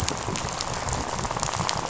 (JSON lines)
{"label": "biophony, rattle", "recorder": "SoundTrap 500"}